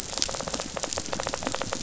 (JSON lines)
{"label": "biophony, knock", "recorder": "SoundTrap 500"}